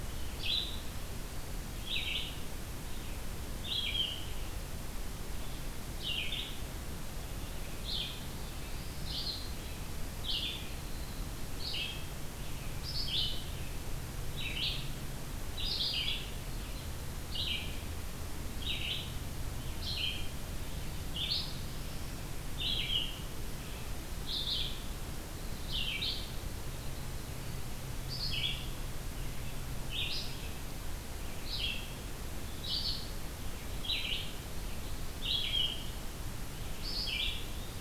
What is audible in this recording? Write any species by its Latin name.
Vireo olivaceus, Setophaga caerulescens